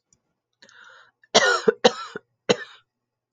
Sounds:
Cough